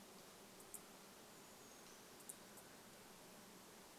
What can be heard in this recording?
Brown Creeper call, unidentified bird chip note